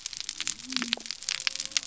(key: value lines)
label: biophony
recorder: SoundTrap 300